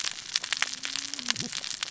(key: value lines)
label: biophony, cascading saw
recorder: SoundTrap 600 or HydroMoth